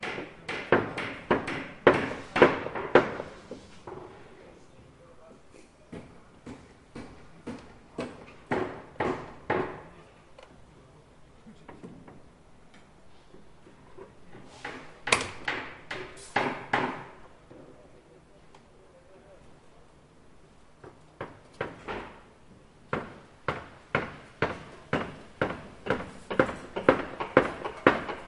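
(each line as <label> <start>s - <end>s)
Two objects are being hit repeatedly with hammers, one louder than the other. 0.0s - 3.3s
Footsteps thumping loudly. 5.9s - 10.0s
An object is being hit with a hammer. 14.6s - 17.2s
A power switch is clicked loudly. 15.0s - 15.4s
An object is hit with a hammer, with each impact becoming increasingly louder. 22.8s - 28.3s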